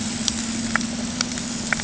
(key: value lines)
label: anthrophony, boat engine
recorder: HydroMoth